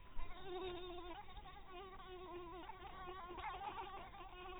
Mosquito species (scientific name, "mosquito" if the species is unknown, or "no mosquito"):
mosquito